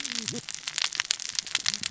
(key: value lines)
label: biophony, cascading saw
recorder: SoundTrap 600 or HydroMoth